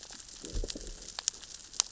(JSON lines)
{"label": "biophony, growl", "recorder": "SoundTrap 600 or HydroMoth"}